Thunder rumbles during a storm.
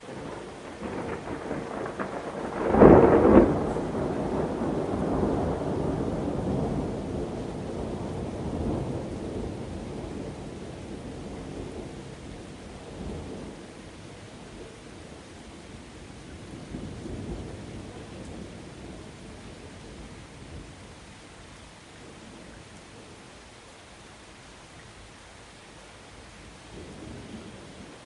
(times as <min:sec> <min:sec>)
0:00.8 0:03.9